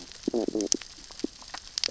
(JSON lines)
{"label": "biophony, stridulation", "recorder": "SoundTrap 600 or HydroMoth"}